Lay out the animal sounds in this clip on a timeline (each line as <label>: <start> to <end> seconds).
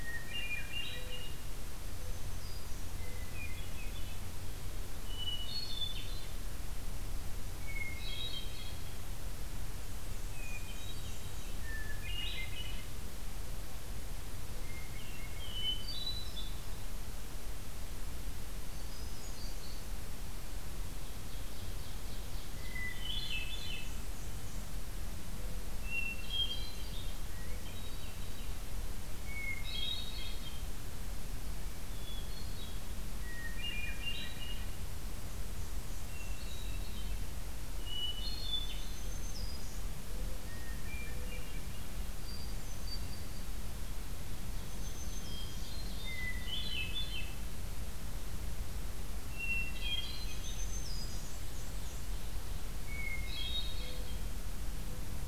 Hermit Thrush (Catharus guttatus): 0.0 to 1.5 seconds
Mourning Dove (Zenaida macroura): 0.8 to 3.3 seconds
Black-throated Green Warbler (Setophaga virens): 1.9 to 2.9 seconds
Hermit Thrush (Catharus guttatus): 3.0 to 4.2 seconds
Hermit Thrush (Catharus guttatus): 5.0 to 6.3 seconds
Hermit Thrush (Catharus guttatus): 7.5 to 8.8 seconds
Black-and-white Warbler (Mniotilta varia): 9.8 to 11.7 seconds
Hermit Thrush (Catharus guttatus): 10.4 to 12.9 seconds
Hermit Thrush (Catharus guttatus): 14.6 to 16.8 seconds
Hermit Thrush (Catharus guttatus): 18.4 to 19.9 seconds
Ovenbird (Seiurus aurocapilla): 21.1 to 22.8 seconds
Hermit Thrush (Catharus guttatus): 22.5 to 24.0 seconds
Black-and-white Warbler (Mniotilta varia): 22.8 to 24.7 seconds
Mourning Dove (Zenaida macroura): 25.3 to 26.4 seconds
Hermit Thrush (Catharus guttatus): 25.8 to 28.7 seconds
Hermit Thrush (Catharus guttatus): 29.2 to 30.7 seconds
Hermit Thrush (Catharus guttatus): 31.9 to 32.9 seconds
Hermit Thrush (Catharus guttatus): 33.2 to 34.8 seconds
Black-and-white Warbler (Mniotilta varia): 35.2 to 36.7 seconds
Hermit Thrush (Catharus guttatus): 36.0 to 37.1 seconds
Hermit Thrush (Catharus guttatus): 37.7 to 39.0 seconds
Black-throated Green Warbler (Setophaga virens): 38.6 to 39.8 seconds
Hermit Thrush (Catharus guttatus): 40.5 to 41.8 seconds
Hermit Thrush (Catharus guttatus): 42.2 to 43.6 seconds
Ovenbird (Seiurus aurocapilla): 44.5 to 46.5 seconds
Black-throated Green Warbler (Setophaga virens): 44.8 to 45.7 seconds
Hermit Thrush (Catharus guttatus): 45.1 to 47.4 seconds
Hermit Thrush (Catharus guttatus): 49.4 to 50.8 seconds
Black-throated Green Warbler (Setophaga virens): 50.1 to 51.3 seconds
Black-and-white Warbler (Mniotilta varia): 50.7 to 52.1 seconds
Ovenbird (Seiurus aurocapilla): 51.0 to 52.7 seconds
Hermit Thrush (Catharus guttatus): 52.8 to 54.2 seconds